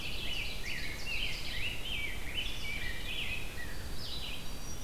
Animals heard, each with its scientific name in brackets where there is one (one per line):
White-throated Sparrow (Zonotrichia albicollis)
Red-eyed Vireo (Vireo olivaceus)
Rose-breasted Grosbeak (Pheucticus ludovicianus)
Ovenbird (Seiurus aurocapilla)